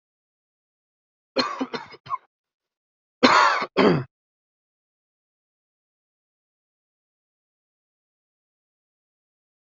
{"expert_labels": [{"quality": "ok", "cough_type": "dry", "dyspnea": false, "wheezing": false, "stridor": false, "choking": false, "congestion": false, "nothing": true, "diagnosis": "lower respiratory tract infection", "severity": "mild"}], "age": 27, "gender": "male", "respiratory_condition": false, "fever_muscle_pain": true, "status": "symptomatic"}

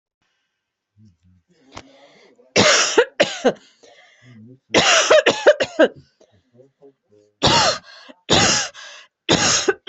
{"expert_labels": [{"quality": "ok", "cough_type": "dry", "dyspnea": false, "wheezing": false, "stridor": false, "choking": true, "congestion": false, "nothing": false, "diagnosis": "lower respiratory tract infection", "severity": "severe"}], "gender": "female", "respiratory_condition": true, "fever_muscle_pain": false, "status": "symptomatic"}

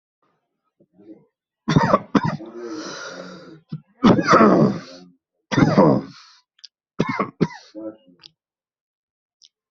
{"expert_labels": [{"quality": "poor", "cough_type": "dry", "dyspnea": false, "wheezing": false, "stridor": false, "choking": false, "congestion": false, "nothing": true, "diagnosis": "upper respiratory tract infection", "severity": "mild"}], "age": 34, "gender": "male", "respiratory_condition": true, "fever_muscle_pain": true, "status": "COVID-19"}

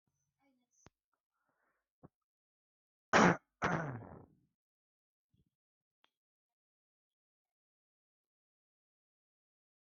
{"expert_labels": [{"quality": "ok", "cough_type": "dry", "dyspnea": false, "wheezing": false, "stridor": false, "choking": false, "congestion": false, "nothing": true, "diagnosis": "COVID-19", "severity": "mild"}], "age": 30, "gender": "female", "respiratory_condition": false, "fever_muscle_pain": false, "status": "COVID-19"}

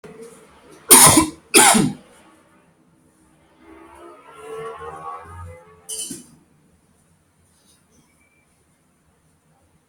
{"expert_labels": [{"quality": "good", "cough_type": "dry", "dyspnea": false, "wheezing": false, "stridor": false, "choking": false, "congestion": false, "nothing": true, "diagnosis": "lower respiratory tract infection", "severity": "mild"}], "age": 40, "gender": "male", "respiratory_condition": false, "fever_muscle_pain": false, "status": "symptomatic"}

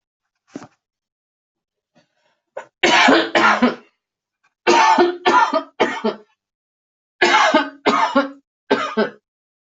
{"expert_labels": [{"quality": "good", "cough_type": "dry", "dyspnea": false, "wheezing": false, "stridor": false, "choking": false, "congestion": false, "nothing": true, "diagnosis": "COVID-19", "severity": "mild"}], "age": 51, "gender": "female", "respiratory_condition": false, "fever_muscle_pain": true, "status": "COVID-19"}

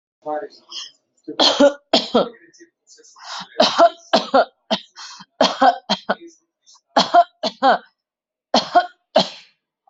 {"expert_labels": [{"quality": "ok", "cough_type": "dry", "dyspnea": false, "wheezing": false, "stridor": false, "choking": false, "congestion": false, "nothing": true, "diagnosis": "upper respiratory tract infection", "severity": "mild"}], "age": 26, "gender": "female", "respiratory_condition": false, "fever_muscle_pain": true, "status": "symptomatic"}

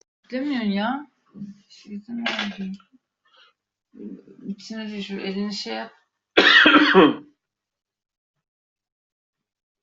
{"expert_labels": [{"quality": "ok", "cough_type": "dry", "dyspnea": false, "wheezing": false, "stridor": false, "choking": false, "congestion": false, "nothing": true, "diagnosis": "COVID-19", "severity": "mild"}], "age": 31, "gender": "male", "respiratory_condition": false, "fever_muscle_pain": false, "status": "symptomatic"}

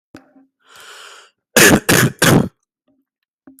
{"expert_labels": [{"quality": "ok", "cough_type": "dry", "dyspnea": false, "wheezing": false, "stridor": false, "choking": false, "congestion": false, "nothing": true, "diagnosis": "COVID-19", "severity": "mild"}], "age": 22, "gender": "male", "respiratory_condition": false, "fever_muscle_pain": true, "status": "COVID-19"}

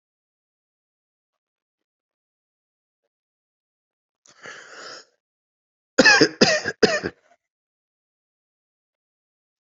{"expert_labels": [{"quality": "good", "cough_type": "dry", "dyspnea": false, "wheezing": false, "stridor": false, "choking": false, "congestion": false, "nothing": true, "diagnosis": "healthy cough", "severity": "pseudocough/healthy cough"}], "age": 42, "gender": "male", "respiratory_condition": false, "fever_muscle_pain": false, "status": "COVID-19"}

